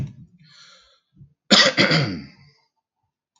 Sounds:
Cough